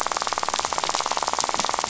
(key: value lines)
label: biophony, rattle
recorder: SoundTrap 500